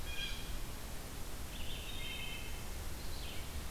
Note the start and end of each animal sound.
0.0s-3.7s: Red-eyed Vireo (Vireo olivaceus)
1.9s-2.6s: Wood Thrush (Hylocichla mustelina)

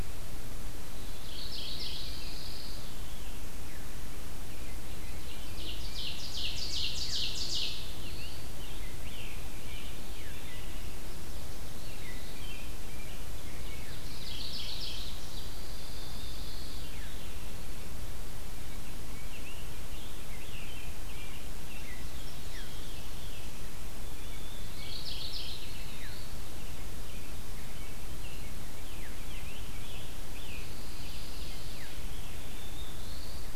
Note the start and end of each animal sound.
1.2s-2.2s: Mourning Warbler (Geothlypis philadelphia)
1.2s-3.1s: Pine Warbler (Setophaga pinus)
2.4s-3.5s: Veery (Catharus fuscescens)
5.3s-7.9s: Ovenbird (Seiurus aurocapilla)
7.3s-10.3s: Scarlet Tanager (Piranga olivacea)
9.6s-11.0s: Veery (Catharus fuscescens)
11.7s-14.2s: American Robin (Turdus migratorius)
14.2s-15.3s: Mourning Warbler (Geothlypis philadelphia)
15.3s-17.1s: Pine Warbler (Setophaga pinus)
16.5s-17.8s: Veery (Catharus fuscescens)
19.1s-22.7s: Scarlet Tanager (Piranga olivacea)
22.1s-23.5s: Veery (Catharus fuscescens)
24.7s-25.7s: Mourning Warbler (Geothlypis philadelphia)
28.0s-30.7s: Scarlet Tanager (Piranga olivacea)
30.5s-32.0s: Pine Warbler (Setophaga pinus)
32.4s-33.6s: Black-throated Blue Warbler (Setophaga caerulescens)

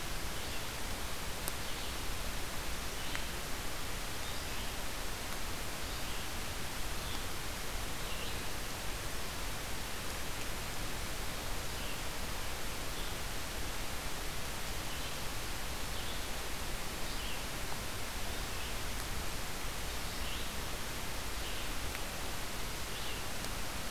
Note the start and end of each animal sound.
0.0s-8.8s: Red-eyed Vireo (Vireo olivaceus)
11.4s-23.9s: Red-eyed Vireo (Vireo olivaceus)

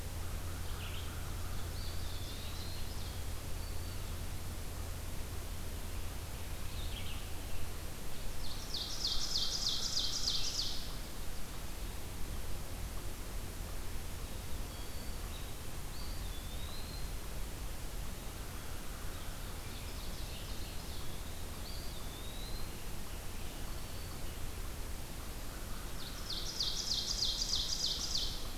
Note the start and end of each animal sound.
0.0s-1.1s: Red-eyed Vireo (Vireo olivaceus)
0.0s-2.1s: American Crow (Corvus brachyrhynchos)
1.4s-3.5s: Ovenbird (Seiurus aurocapilla)
3.3s-4.1s: Black-throated Green Warbler (Setophaga virens)
6.5s-7.3s: Red-eyed Vireo (Vireo olivaceus)
8.2s-11.0s: Ovenbird (Seiurus aurocapilla)
14.4s-15.4s: Black-throated Green Warbler (Setophaga virens)
15.6s-17.4s: Eastern Wood-Pewee (Contopus virens)
19.3s-21.3s: Ovenbird (Seiurus aurocapilla)
20.7s-22.9s: Eastern Wood-Pewee (Contopus virens)
25.1s-26.5s: American Crow (Corvus brachyrhynchos)
25.8s-28.6s: Ovenbird (Seiurus aurocapilla)

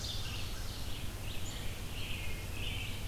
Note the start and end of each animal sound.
0.0s-0.5s: Ovenbird (Seiurus aurocapilla)
0.0s-0.7s: American Crow (Corvus brachyrhynchos)
0.0s-3.1s: Red-eyed Vireo (Vireo olivaceus)
1.5s-3.1s: American Robin (Turdus migratorius)

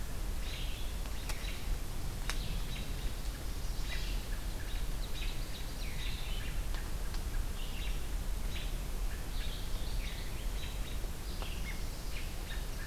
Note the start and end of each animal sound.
0.0s-10.4s: Red-eyed Vireo (Vireo olivaceus)
3.1s-4.2s: Chestnut-sided Warbler (Setophaga pensylvanica)
4.5s-6.0s: Ovenbird (Seiurus aurocapilla)
7.7s-8.0s: American Robin (Turdus migratorius)
8.5s-8.7s: American Robin (Turdus migratorius)
9.3s-11.0s: American Robin (Turdus migratorius)
10.9s-12.9s: Red-eyed Vireo (Vireo olivaceus)
11.6s-12.6s: American Robin (Turdus migratorius)

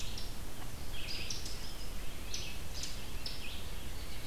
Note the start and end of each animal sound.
0.0s-1.9s: American Robin (Turdus migratorius)
0.0s-4.3s: Red-eyed Vireo (Vireo olivaceus)

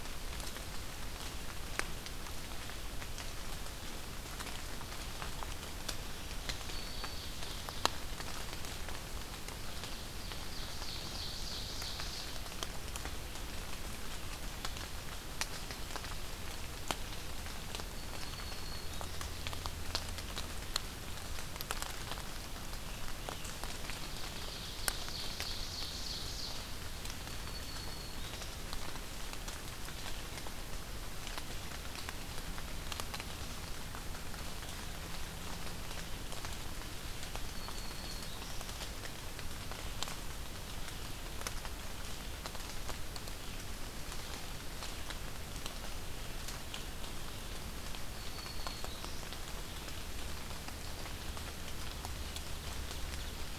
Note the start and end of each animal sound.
5.9s-7.5s: Black-throated Green Warbler (Setophaga virens)
6.2s-8.1s: Ovenbird (Seiurus aurocapilla)
10.0s-12.3s: Ovenbird (Seiurus aurocapilla)
17.8s-19.3s: Black-throated Green Warbler (Setophaga virens)
23.5s-26.6s: Ovenbird (Seiurus aurocapilla)
26.8s-28.5s: Black-throated Green Warbler (Setophaga virens)
37.2s-38.7s: Black-throated Green Warbler (Setophaga virens)
48.0s-49.3s: Black-throated Green Warbler (Setophaga virens)

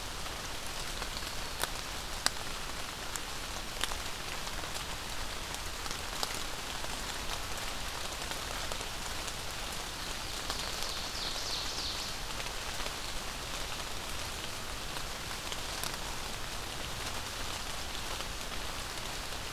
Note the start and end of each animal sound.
10.3s-12.2s: Ovenbird (Seiurus aurocapilla)

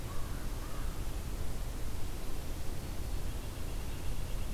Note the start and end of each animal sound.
0.0s-1.0s: American Crow (Corvus brachyrhynchos)
3.3s-4.5s: Red-breasted Nuthatch (Sitta canadensis)

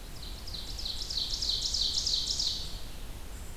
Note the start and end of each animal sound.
0.0s-2.7s: Ovenbird (Seiurus aurocapilla)
0.0s-3.6s: Red-eyed Vireo (Vireo olivaceus)
0.0s-3.6s: unidentified call

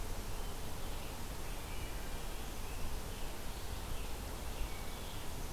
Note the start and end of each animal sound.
0.2s-5.4s: Scarlet Tanager (Piranga olivacea)

